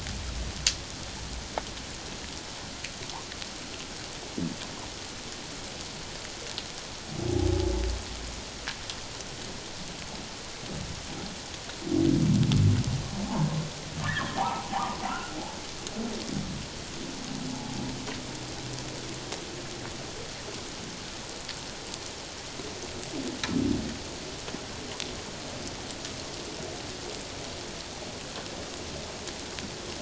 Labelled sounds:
14.0	14.7	humpback whale, 0.78 to 2.0 kHz
15.1	15.4	humpback whale, 1.2 to 1.6 kHz
17.5	17.8	humpback whale, 0.78 to 0.91 kHz

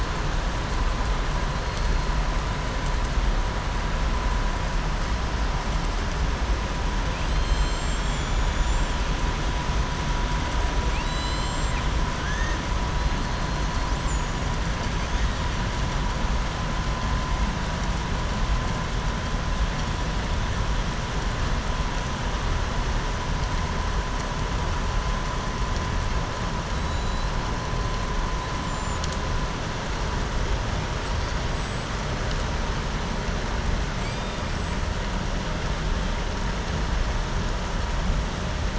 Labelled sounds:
7.1	8.3	killer whale, southern resident, 2.4 to 5.2 kHz
10.8	11.8	killer whale, southern resident, 2.0 to 8.0 kHz
12.2	12.6	killer whale, southern resident, 1.5 to 2.8 kHz
26.8	27.3	killer whale, southern resident, 3.8 to 4.9 kHz
30.9	31.9	killer whale, southern resident, 6.8 to 8.0 kHz
33.9	34.8	killer whale, southern resident, 7.4 to 8.0 kHz

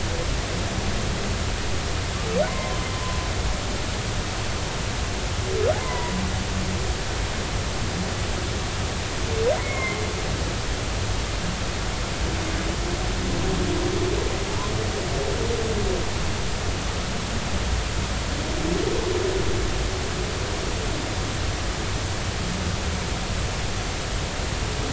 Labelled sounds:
2.5	2.9	humpback whale, 0.90 to 1.1 kHz
5.8	6.1	humpback whale, 0.90 to 1.1 kHz
9.6	10.0	humpback whale, 2.0 to 2.2 kHz

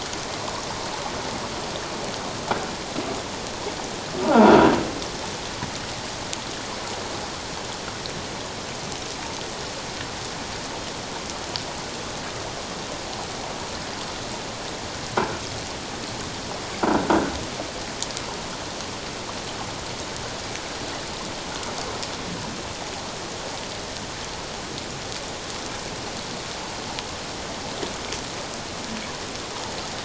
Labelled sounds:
4.2	4.7	croaking sound likely from a nearby submerged object, 0.78 to 1.5 kHz

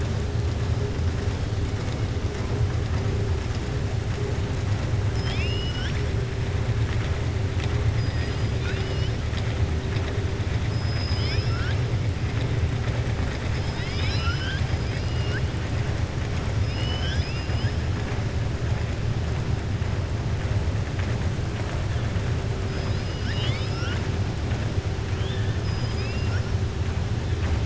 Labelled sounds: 5.0	6.0	killer whale, southern resident, 1.3 to 6.9 kHz
8.5	9.1	killer whale, southern resident, 1.4 to 5.8 kHz
10.8	11.8	killer whale, southern resident, 1.4 to 5.7 kHz
16.6	17.7	killer whale, southern resident, 1.4 to 7.8 kHz
22.7	24.0	killer whale, southern resident, 1.2 to 5.7 kHz
25.5	26.5	killer whale, southern resident, 1.4 to 5.6 kHz

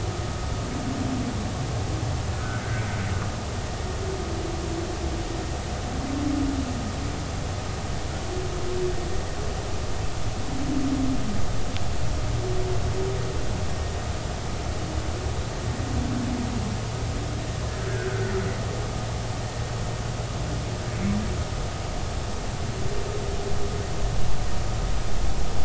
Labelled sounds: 2.3	2.6	humpback whale, 1.2 to 1.6 kHz
18.1	18.3	humpback whale, 1.3 to 1.6 kHz

